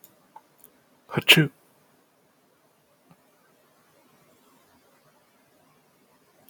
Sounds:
Sneeze